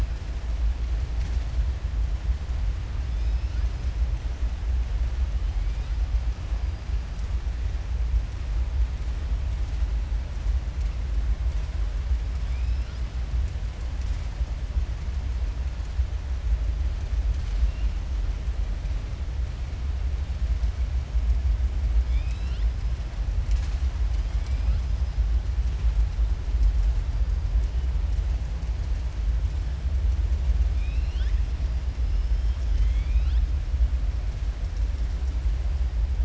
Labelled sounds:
30.7	31.4	killer whale, southern resident, 1.5 to 5.8 kHz

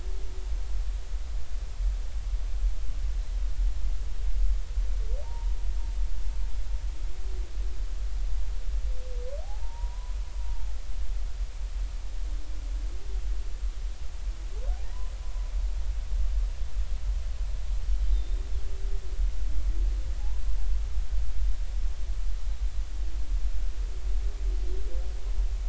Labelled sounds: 5.2	5.5	humpback whale, 0.83 to 0.99 kHz
9.4	10.2	humpback whale, 0.80 to 1.1 kHz
18.1	18.4	humpback whale, 3.6 to 3.7 kHz

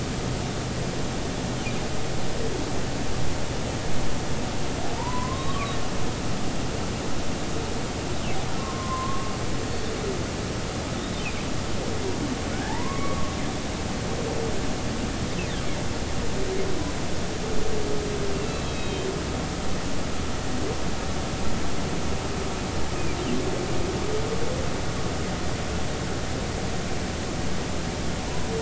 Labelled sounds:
5.0	5.8	humpback whale, 0.86 to 1.2 kHz
8.6	9.3	humpback whale, 0.99 to 1.2 kHz
11.0	11.2	humpback whale, 3.5 to 3.8 kHz
12.5	13.3	humpback whale, 0.80 to 2.3 kHz
18.3	19.1	humpback whale, 2.5 to 4.0 kHz

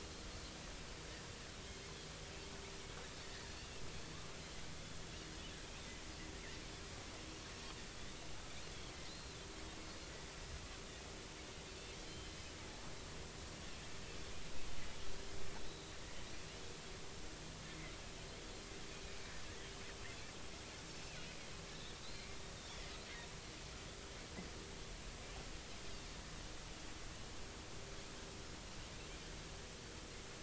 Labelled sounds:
3.6	3.8	Pacific white-sided dolphin, 2.5 to 2.9 kHz
9.1	9.4	Pacific white-sided dolphin, 3.8 to 4.3 kHz
11.7	12.3	Pacific white-sided dolphin, 2.6 to 3.2 kHz
15.6	16.0	Pacific white-sided dolphin, 3.8 to 4.0 kHz
22.0	22.4	Pacific white-sided dolphin, 2.0 to 4.2 kHz

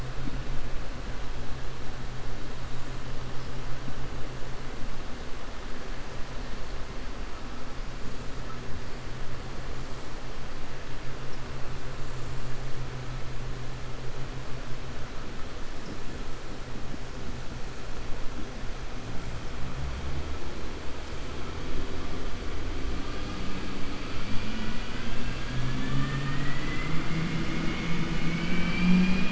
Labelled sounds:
24.3	25.1	vessel noise, 1.5 to 3.4 kHz
27.4	28.0	vessel noise, 1.3 to 3.2 kHz

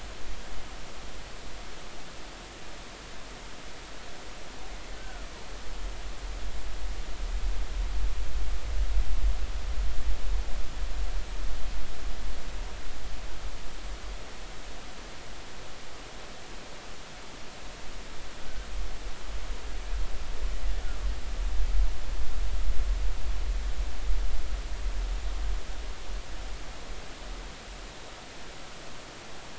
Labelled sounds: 5.0	5.3	killer whale, Bigg's (transient), 1.2 to 1.6 kHz

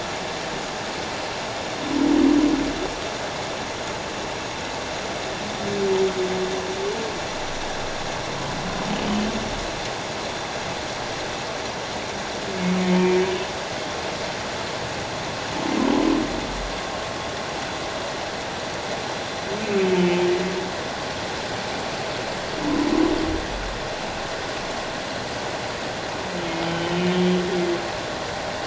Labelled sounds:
20.0	20.2	humpback whale, 2.9 to 3.1 kHz
26.6	27.0	humpback whale, 3.0 to 3.2 kHz

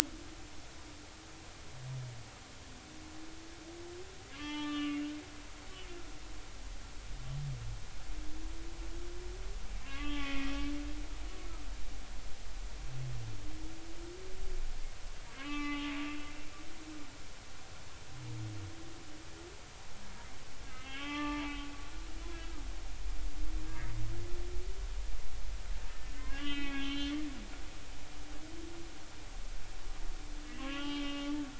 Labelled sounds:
4.3	5.1	humpback whale, 0.83 to 4.2 kHz
9.8	11.4	humpback whale, 1.0 to 3.6 kHz
15.4	16.0	humpback whale, 0.80 to 2.9 kHz
20.7	21.4	humpback whale, 1.1 to 3.4 kHz
22.0	22.6	humpback whale, 0.83 to 1.4 kHz
25.9	27.1	humpback whale, 1.4 to 3.8 kHz
30.5	31.4	humpback whale, 0.99 to 3.3 kHz

